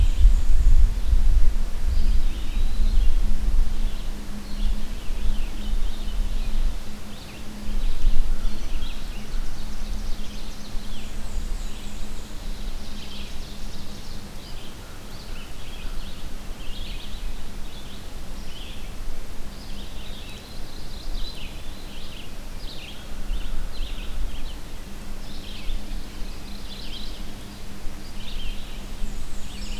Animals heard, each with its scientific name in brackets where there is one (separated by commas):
Veery (Catharus fuscescens), Black-and-white Warbler (Mniotilta varia), Ovenbird (Seiurus aurocapilla), American Robin (Turdus migratorius), Eastern Wood-Pewee (Contopus virens), Red-eyed Vireo (Vireo olivaceus), Mourning Warbler (Geothlypis philadelphia)